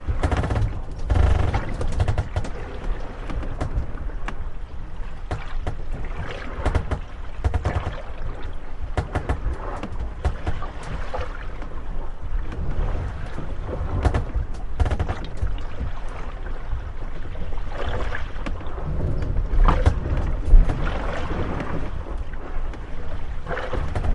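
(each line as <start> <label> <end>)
0.0 A boat creaks repeatedly. 24.1
0.0 Water waves splashing continuously. 24.1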